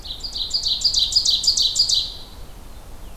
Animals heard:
Ovenbird (Seiurus aurocapilla)
Blue-headed Vireo (Vireo solitarius)

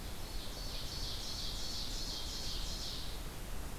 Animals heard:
Ovenbird (Seiurus aurocapilla)

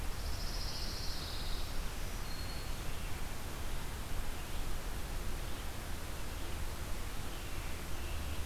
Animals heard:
American Robin (Turdus migratorius)
Pine Warbler (Setophaga pinus)
Black-throated Green Warbler (Setophaga virens)

